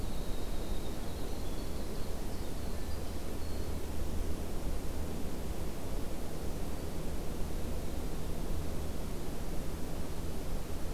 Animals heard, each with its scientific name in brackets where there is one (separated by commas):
Winter Wren (Troglodytes hiemalis), Ovenbird (Seiurus aurocapilla), Hermit Thrush (Catharus guttatus)